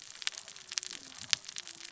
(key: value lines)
label: biophony, cascading saw
recorder: SoundTrap 600 or HydroMoth